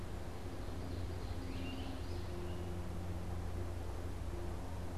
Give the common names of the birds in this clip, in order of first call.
Ovenbird, Great Crested Flycatcher